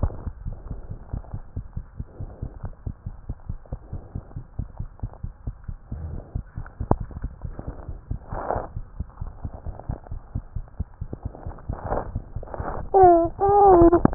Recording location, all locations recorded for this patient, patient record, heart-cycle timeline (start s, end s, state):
tricuspid valve (TV)
aortic valve (AV)+pulmonary valve (PV)+tricuspid valve (TV)+mitral valve (MV)
#Age: Child
#Sex: Female
#Height: 83.0 cm
#Weight: 10.5 kg
#Pregnancy status: False
#Murmur: Absent
#Murmur locations: nan
#Most audible location: nan
#Systolic murmur timing: nan
#Systolic murmur shape: nan
#Systolic murmur grading: nan
#Systolic murmur pitch: nan
#Systolic murmur quality: nan
#Diastolic murmur timing: nan
#Diastolic murmur shape: nan
#Diastolic murmur grading: nan
#Diastolic murmur pitch: nan
#Diastolic murmur quality: nan
#Outcome: Normal
#Campaign: 2015 screening campaign
0.00	3.13	unannotated
3.13	3.26	diastole
3.26	3.38	S1
3.38	3.46	systole
3.46	3.58	S2
3.58	3.70	diastole
3.70	3.80	S1
3.80	3.90	systole
3.90	4.02	S2
4.02	4.13	diastole
4.13	4.22	S1
4.22	4.34	systole
4.34	4.41	S2
4.41	4.56	diastole
4.56	4.68	S1
4.68	4.78	systole
4.78	4.88	S2
4.88	5.01	diastole
5.01	5.11	S1
5.11	5.23	systole
5.23	5.34	S2
5.34	5.45	diastole
5.45	5.53	S1
5.53	5.66	systole
5.66	5.76	S2
5.76	5.89	diastole
5.89	6.01	S1
6.01	6.11	systole
6.11	6.24	S2
6.24	6.33	diastole
6.33	6.44	S1
6.44	6.54	systole
6.54	6.66	S2
6.66	6.79	diastole
6.79	6.88	S1
6.88	6.99	systole
6.99	7.09	S2
7.09	7.22	diastole
7.22	7.29	S1
7.29	7.41	systole
7.41	7.48	S2
7.48	7.64	diastole
7.64	7.76	S1
7.76	7.84	systole
7.84	7.96	S2
7.96	8.08	diastole
8.08	14.14	unannotated